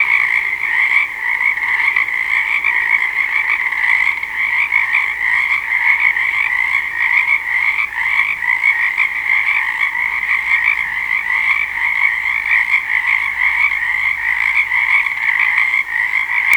Are these animals outside?
yes